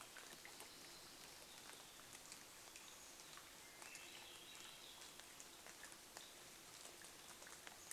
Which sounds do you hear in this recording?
unidentified sound, rain, Evening Grosbeak call, Swainson's Thrush song